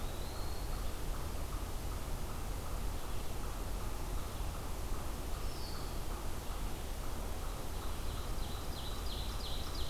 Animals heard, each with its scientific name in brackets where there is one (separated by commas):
Eastern Wood-Pewee (Contopus virens), Ovenbird (Seiurus aurocapilla), unknown mammal